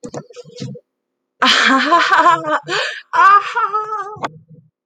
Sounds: Laughter